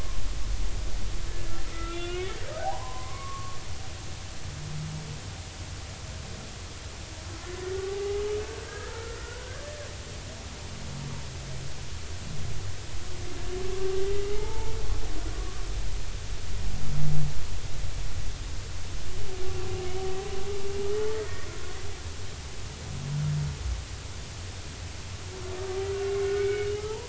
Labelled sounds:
1.7	3.6	humpback whale, 0.80 to 3.0 kHz
8.0	9.6	humpback whale, 1.1 to 1.8 kHz
14.3	14.7	humpback whale, 0.80 to 2.2 kHz
26.0	27.0	humpback whale, 0.83 to 2.3 kHz

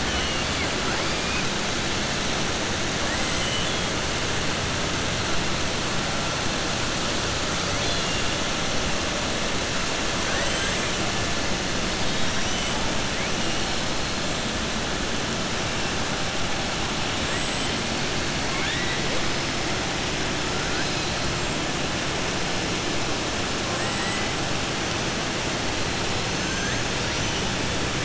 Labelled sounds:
0.0	0.7	killer whale, southern resident, 1.6 to 3.5 kHz
3.3	3.8	killer whale, southern resident, 2.0 to 3.5 kHz
7.7	8.2	killer whale, southern resident, 2.8 to 4.9 kHz
10.2	10.8	killer whale, southern resident, 0.60 to 4.1 kHz
17.2	17.7	killer whale, southern resident, 7.5 to 7.8 kHz
18.4	19.0	killer whale, southern resident, 1.1 to 4.0 kHz
23.7	24.3	killer whale, southern resident, 1.0 to 3.0 kHz
26.3	26.9	killer whale, southern resident, 6.2 to 6.8 kHz

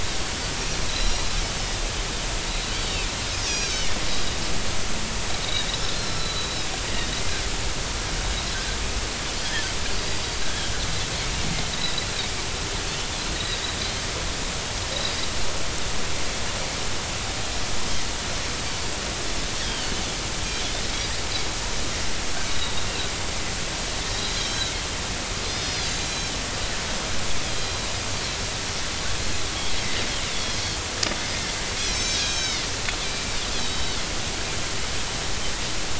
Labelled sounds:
0.9	1.2	Pacific white-sided dolphin, 3.8 to 5.7 kHz
2.8	3.1	Pacific white-sided dolphin, 3.6 to 3.9 kHz
3.5	4.1	Pacific white-sided dolphin, 2.4 to 6.7 kHz
5.4	6.7	Pacific white-sided dolphin, 3.6 to 4.3 kHz
10.4	10.7	Pacific white-sided dolphin, 1.5 to 1.8 kHz
11.7	12.1	Pacific white-sided dolphin, 3.7 to 4.1 kHz
13.3	13.6	Pacific white-sided dolphin, 3.7 to 4.0 kHz
19.6	19.9	Pacific white-sided dolphin, 2.9 to 3.5 kHz
22.5	22.7	Pacific white-sided dolphin, 3.7 to 4.0 kHz
24.1	24.7	Pacific white-sided dolphin, 3.7 to 5.0 kHz
25.5	26.4	Pacific white-sided dolphin, 3.0 to 6.5 kHz
27.4	27.9	Pacific white-sided dolphin, 3.2 to 4.1 kHz
30.3	30.6	Pacific white-sided dolphin, 3.2 to 3.5 kHz
31.8	32.7	Pacific white-sided dolphin, 2.0 to 6.3 kHz
33.5	34.0	Pacific white-sided dolphin, 3.0 to 4.1 kHz

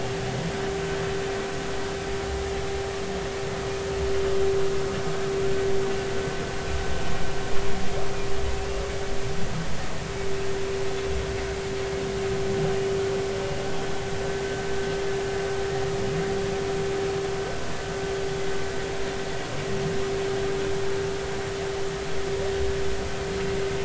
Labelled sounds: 8.5	8.8	humpback whale, 2.5 to 2.8 kHz

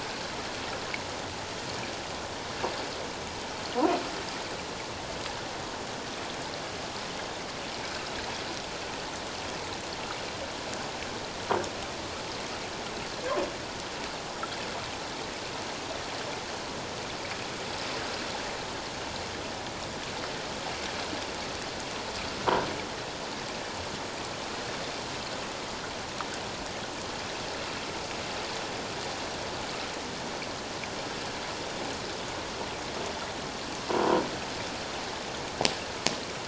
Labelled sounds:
33.9	34.2	croaking sound likely from a nearby submerged object, 0.91 to 1.1 kHz

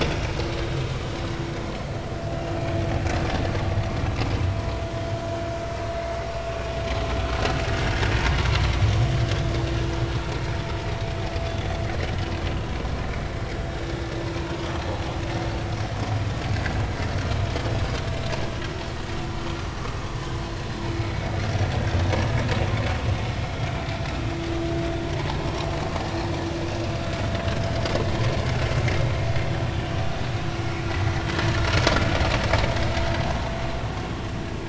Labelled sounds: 17.1	17.4	vessel noise, 4.1 to 4.6 kHz
30.9	31.1	vessel noise, 1.9 to 2.0 kHz

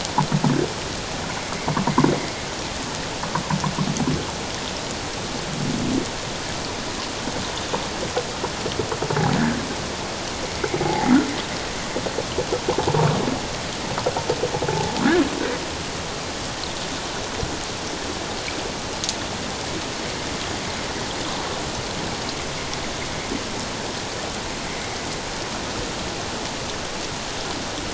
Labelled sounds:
10.8	11.1	humpback whale, 0.78 to 0.94 kHz

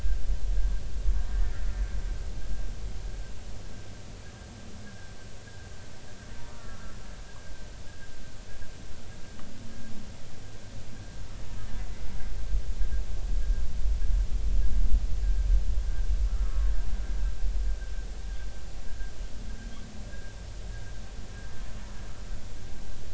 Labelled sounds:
1.3	1.7	humpback whale, 1.7 to 2.0 kHz
4.8	5.1	humpback whale, 1.5 to 1.7 kHz
6.5	7.0	humpback whale, 1.1 to 1.5 kHz
15.2	15.5	humpback whale, 1.5 to 1.7 kHz
16.2	16.7	humpback whale, 1.1 to 1.4 kHz
18.9	19.1	humpback whale, 1.5 to 1.8 kHz

